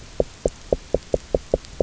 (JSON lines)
{"label": "biophony, knock", "recorder": "SoundTrap 300"}